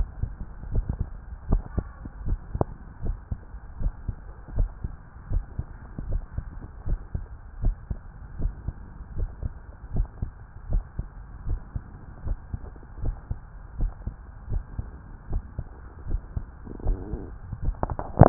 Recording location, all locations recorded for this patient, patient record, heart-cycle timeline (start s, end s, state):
tricuspid valve (TV)
aortic valve (AV)+pulmonary valve (PV)+tricuspid valve (TV)+mitral valve (MV)
#Age: Adolescent
#Sex: Male
#Height: nan
#Weight: nan
#Pregnancy status: False
#Murmur: Absent
#Murmur locations: nan
#Most audible location: nan
#Systolic murmur timing: nan
#Systolic murmur shape: nan
#Systolic murmur grading: nan
#Systolic murmur pitch: nan
#Systolic murmur quality: nan
#Diastolic murmur timing: nan
#Diastolic murmur shape: nan
#Diastolic murmur grading: nan
#Diastolic murmur pitch: nan
#Diastolic murmur quality: nan
#Outcome: Abnormal
#Campaign: 2015 screening campaign
0.00	3.77	unannotated
3.77	3.94	S1
3.94	4.05	systole
4.05	4.16	S2
4.16	4.54	diastole
4.54	4.69	S1
4.69	4.80	systole
4.80	4.94	S2
4.94	5.30	diastole
5.30	5.44	S1
5.44	5.56	systole
5.56	5.66	S2
5.66	6.08	diastole
6.08	6.24	S1
6.24	6.34	systole
6.34	6.46	S2
6.46	6.84	diastole
6.84	7.02	S1
7.02	7.11	systole
7.11	7.26	S2
7.26	7.58	diastole
7.58	7.75	S1
7.75	7.87	systole
7.87	8.00	S2
8.00	8.38	diastole
8.38	8.54	S1
8.54	8.64	systole
8.64	8.76	S2
8.76	9.13	diastole
9.13	9.30	S1
9.30	9.39	systole
9.39	9.52	S2
9.52	9.90	diastole
9.90	10.08	S1
10.08	10.18	systole
10.18	10.32	S2
10.32	10.68	diastole
10.68	10.84	S1
10.84	10.96	systole
10.96	11.08	S2
11.08	11.43	diastole
11.43	11.60	S1
11.60	11.72	systole
11.72	11.84	S2
11.84	12.22	diastole
12.22	12.38	S1
12.38	12.50	systole
12.50	12.62	S2
12.62	13.00	diastole
13.00	13.16	S1
13.16	13.27	systole
13.27	13.40	S2
13.40	13.78	diastole
13.78	13.94	S1
13.94	14.04	systole
14.04	14.16	S2
14.16	14.46	diastole
14.46	14.64	S1
14.64	14.74	systole
14.74	14.88	S2
14.88	15.28	diastole
15.28	15.42	S1
15.42	15.54	systole
15.54	15.66	S2
15.66	16.04	diastole
16.04	16.22	S1
16.22	18.29	unannotated